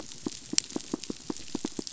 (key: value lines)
label: biophony, knock
recorder: SoundTrap 500